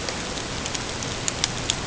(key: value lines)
label: ambient
recorder: HydroMoth